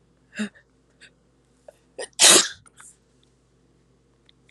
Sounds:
Sneeze